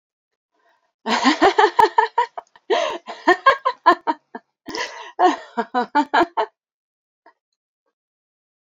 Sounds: Laughter